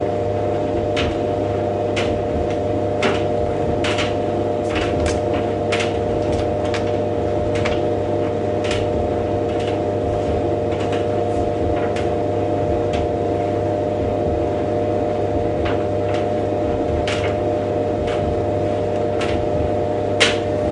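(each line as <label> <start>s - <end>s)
Clothes tumbling steadily inside a washing machine, producing a soft, rhythmic thumping and mechanical rotation sound. 0.1s - 20.7s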